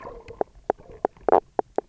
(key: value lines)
label: biophony, knock croak
recorder: SoundTrap 300